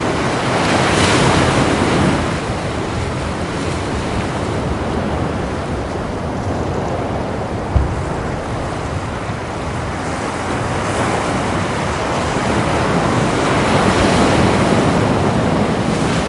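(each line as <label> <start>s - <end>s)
Heavy ocean waves crash rhythmically against the shore, producing a deep, powerful, and continuous roar. 0.1s - 16.3s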